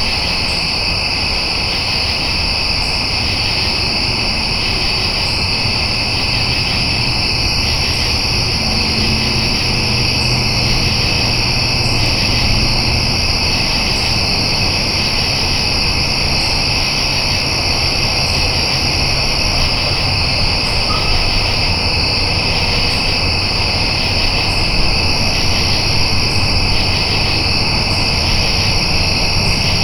Are lions attacking an animal?
no